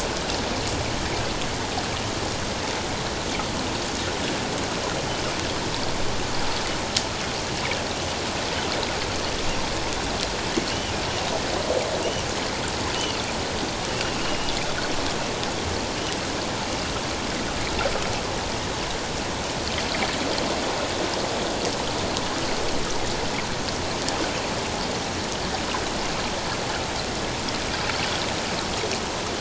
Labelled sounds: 12.9	13.2	Pacific white-sided dolphin, 2.7 to 3.1 kHz
14.2	14.5	Pacific white-sided dolphin, 2.8 to 2.9 kHz

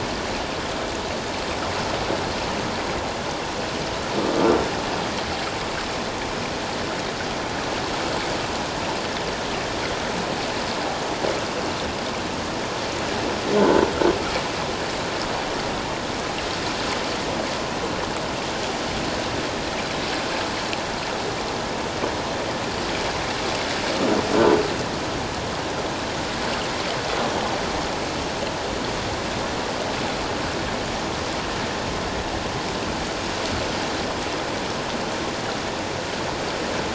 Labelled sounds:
13.6	13.8	croaking sound likely from a nearby submerged object, 1.4 to 1.6 kHz

